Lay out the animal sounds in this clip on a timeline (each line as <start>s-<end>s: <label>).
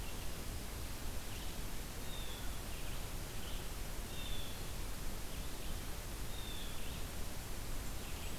0.0s-8.4s: Blue-headed Vireo (Vireo solitarius)
1.9s-7.0s: Blue Jay (Cyanocitta cristata)